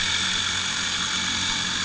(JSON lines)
{"label": "anthrophony, boat engine", "recorder": "HydroMoth"}